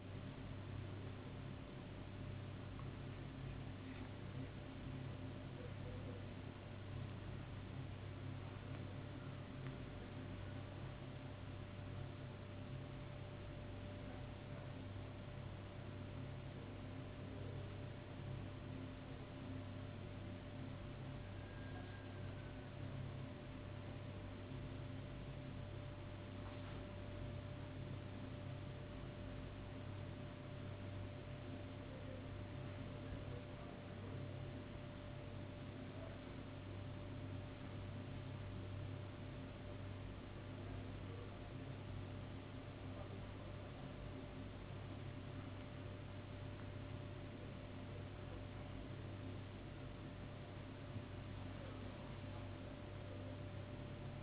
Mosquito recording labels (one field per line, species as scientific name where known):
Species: no mosquito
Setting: insect culture